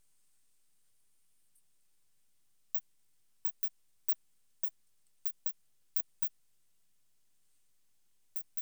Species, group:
Poecilimon zimmeri, Orthoptera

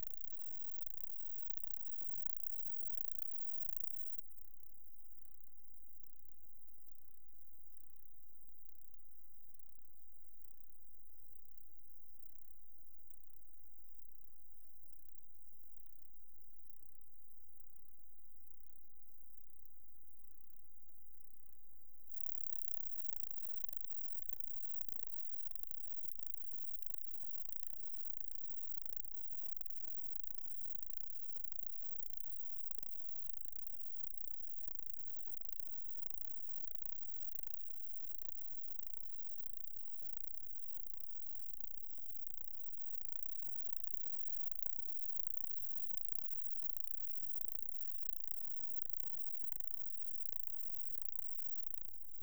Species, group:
Metrioptera prenjica, Orthoptera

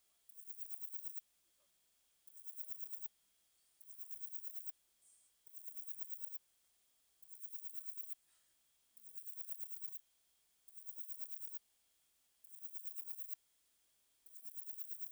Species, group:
Parnassiana chelmos, Orthoptera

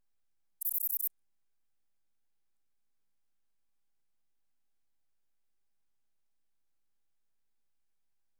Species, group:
Ephippiger diurnus, Orthoptera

